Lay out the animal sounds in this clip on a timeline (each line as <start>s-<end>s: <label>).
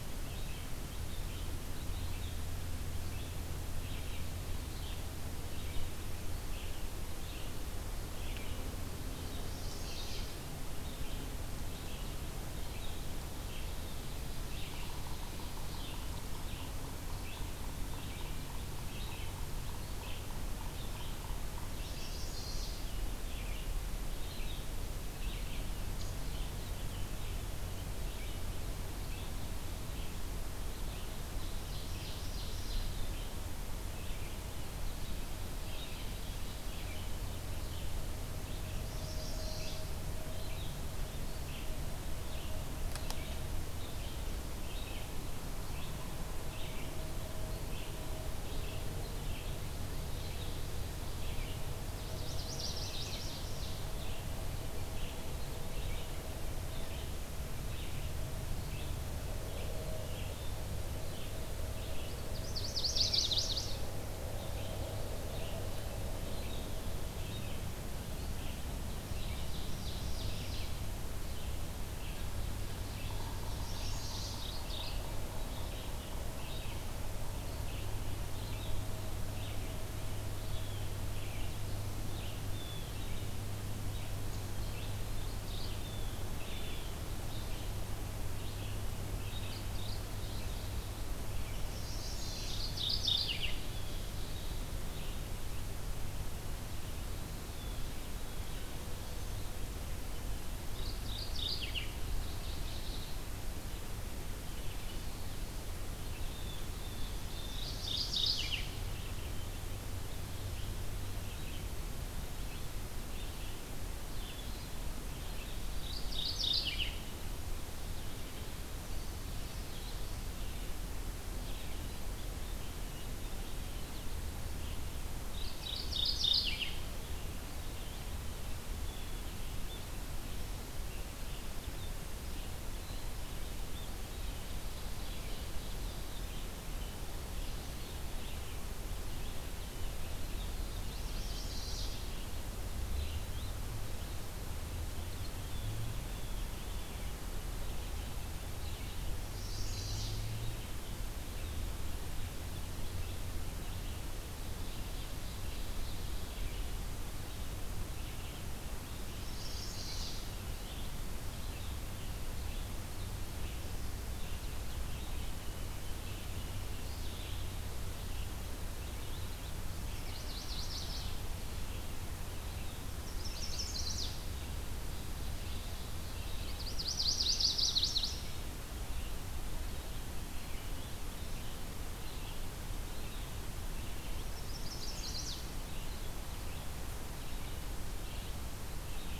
0.0s-39.8s: Red-eyed Vireo (Vireo olivaceus)
9.4s-10.4s: Chestnut-sided Warbler (Setophaga pensylvanica)
14.5s-21.8s: Yellow-bellied Sapsucker (Sphyrapicus varius)
21.6s-22.9s: Chestnut-sided Warbler (Setophaga pensylvanica)
31.2s-33.2s: Ovenbird (Seiurus aurocapilla)
38.7s-39.9s: Chestnut-sided Warbler (Setophaga pensylvanica)
40.2s-95.3s: Red-eyed Vireo (Vireo olivaceus)
51.8s-53.5s: Chestnut-sided Warbler (Setophaga pensylvanica)
62.3s-64.0s: Chestnut-sided Warbler (Setophaga pensylvanica)
69.0s-71.0s: Ovenbird (Seiurus aurocapilla)
73.1s-74.5s: Chestnut-sided Warbler (Setophaga pensylvanica)
73.9s-75.4s: Mourning Warbler (Geothlypis philadelphia)
80.3s-81.0s: Blue Jay (Cyanocitta cristata)
82.4s-83.1s: Blue Jay (Cyanocitta cristata)
84.5s-85.8s: Mourning Warbler (Geothlypis philadelphia)
85.6s-87.0s: Blue Jay (Cyanocitta cristata)
89.1s-90.1s: Mourning Warbler (Geothlypis philadelphia)
91.4s-92.7s: Chestnut-sided Warbler (Setophaga pensylvanica)
92.2s-93.7s: Mourning Warbler (Geothlypis philadelphia)
93.6s-94.2s: Blue Jay (Cyanocitta cristata)
97.4s-98.6s: Blue Jay (Cyanocitta cristata)
100.4s-102.2s: Mourning Warbler (Geothlypis philadelphia)
101.9s-103.2s: Magnolia Warbler (Setophaga magnolia)
103.5s-154.0s: Red-eyed Vireo (Vireo olivaceus)
106.1s-107.8s: Blue Jay (Cyanocitta cristata)
107.5s-108.8s: Mourning Warbler (Geothlypis philadelphia)
115.4s-117.4s: Mourning Warbler (Geothlypis philadelphia)
125.0s-127.1s: Mourning Warbler (Geothlypis philadelphia)
128.8s-129.3s: Blue Jay (Cyanocitta cristata)
140.7s-142.1s: Chestnut-sided Warbler (Setophaga pensylvanica)
145.4s-147.3s: Blue Jay (Cyanocitta cristata)
149.2s-150.2s: Chestnut-sided Warbler (Setophaga pensylvanica)
154.2s-156.8s: Ovenbird (Seiurus aurocapilla)
157.1s-189.2s: Red-eyed Vireo (Vireo olivaceus)
159.0s-160.5s: Chestnut-sided Warbler (Setophaga pensylvanica)
169.7s-171.3s: Chestnut-sided Warbler (Setophaga pensylvanica)
172.8s-174.3s: Chestnut-sided Warbler (Setophaga pensylvanica)
176.3s-178.4s: Chestnut-sided Warbler (Setophaga pensylvanica)
184.1s-185.7s: Chestnut-sided Warbler (Setophaga pensylvanica)